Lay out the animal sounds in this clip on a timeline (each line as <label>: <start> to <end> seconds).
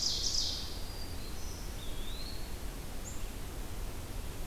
Ovenbird (Seiurus aurocapilla): 0.0 to 0.9 seconds
Black-capped Chickadee (Poecile atricapillus): 0.0 to 4.5 seconds
Black-throated Green Warbler (Setophaga virens): 0.2 to 1.8 seconds
Eastern Wood-Pewee (Contopus virens): 1.7 to 2.6 seconds